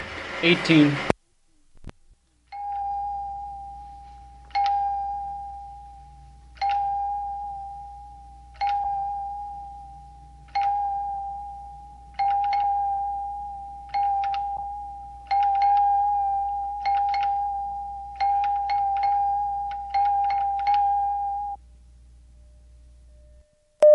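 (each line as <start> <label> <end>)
0.0 A man speaks with heavy background noise. 2.1
2.5 Sharp, short chimes repeat intermittently with single and multiple strikes. 21.7
2.5 A clock hammer produces soft, mechanical tones with single and multiple strikes. 21.6
23.8 A short, loud electronic signal is emitted. 23.9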